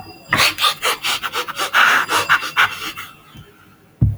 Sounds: Sniff